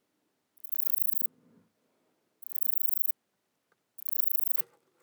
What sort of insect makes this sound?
orthopteran